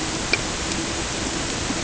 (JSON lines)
{"label": "ambient", "recorder": "HydroMoth"}